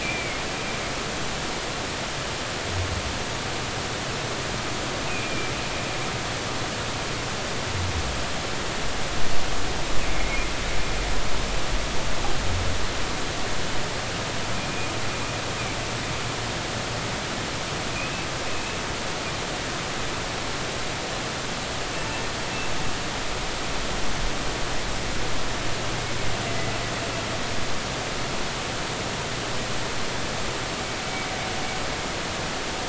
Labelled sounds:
0.0	0.4	humpback whale, 2.1 to 2.6 kHz
5.1	5.5	humpback whale, 2.3 to 2.6 kHz
10.1	10.4	humpback whale, 2.1 to 2.3 kHz
14.5	14.9	humpback whale, 2.3 to 2.5 kHz

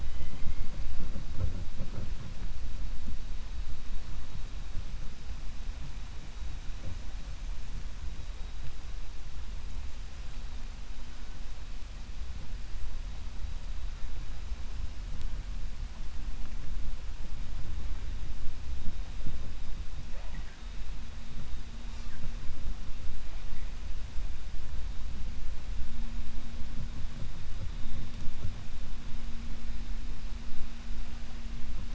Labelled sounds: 0.0	0.6	killer whale, 2.0 to 3.2 kHz

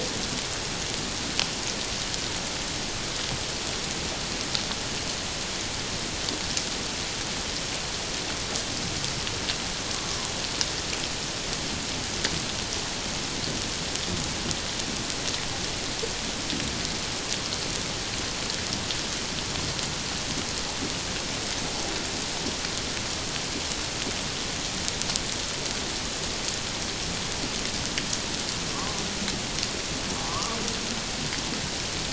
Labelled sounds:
30.1	30.6	humpback whale, 0.78 to 1.3 kHz

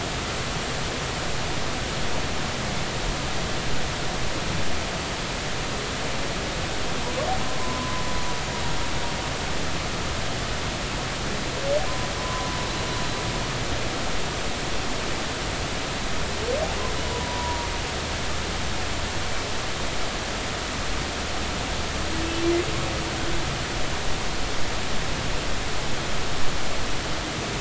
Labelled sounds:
7.4	8.0	humpback whale, 0.96 to 1.1 kHz
12.2	12.5	humpback whale, 0.96 to 1.2 kHz
17.1	17.7	humpback whale, 0.90 to 1.0 kHz

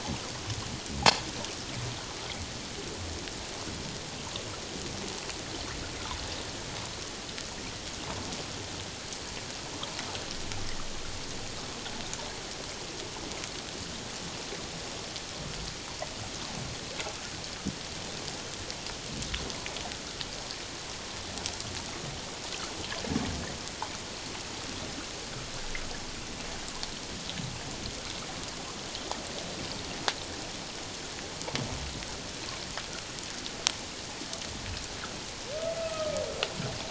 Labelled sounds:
35.8	36.2	humpback whale, 1.2 to 1.4 kHz

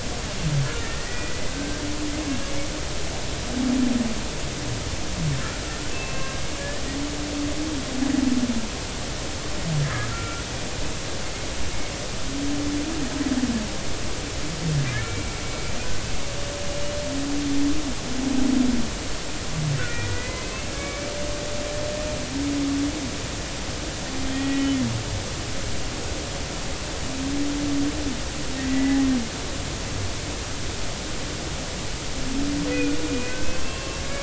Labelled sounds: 0.8	1.8	humpback whale, 1.5 to 2.0 kHz
2.2	2.5	humpback whale, 1.6 to 1.7 kHz
5.9	6.8	humpback whale, 1.0 to 2.7 kHz
9.8	10.5	humpback whale, 1.3 to 2.4 kHz
14.9	15.4	humpback whale, 1.9 to 2.3 kHz
19.8	21.1	humpback whale, 1.1 to 2.7 kHz
24.3	24.8	humpback whale, 1.8 to 3.1 kHz
28.6	29.1	humpback whale, 1.8 to 2.0 kHz
32.7	34.0	humpback whale, 1.0 to 2.8 kHz

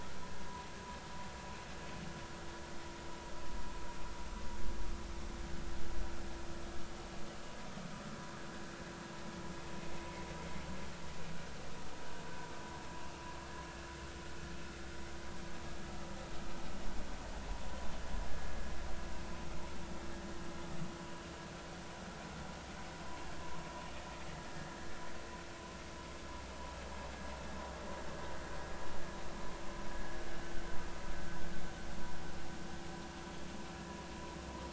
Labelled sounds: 24.5	24.8	vessel noise, 1.6 to 1.8 kHz

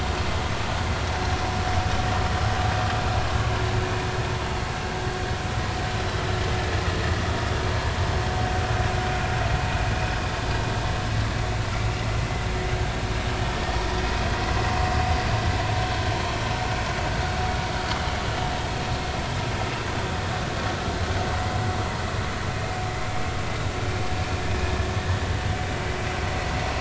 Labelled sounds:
21.3	21.6	vessel noise, 0.83 to 1.2 kHz

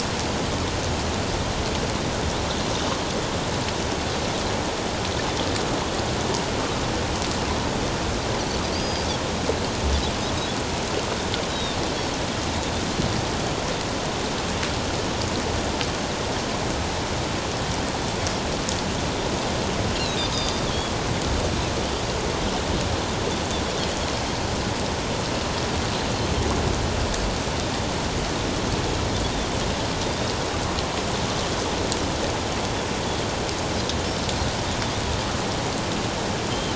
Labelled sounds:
8.7	9.1	Pacific white-sided dolphin, 4.3 to 5.0 kHz
11.5	11.8	Pacific white-sided dolphin, 3.5 to 3.9 kHz
20.0	20.6	Pacific white-sided dolphin, 3.5 to 5.1 kHz
30.0	30.3	Pacific white-sided dolphin, 3.5 to 3.8 kHz
36.5	36.7	Pacific white-sided dolphin, 3.0 to 3.2 kHz

